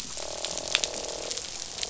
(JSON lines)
{"label": "biophony, croak", "recorder": "SoundTrap 500"}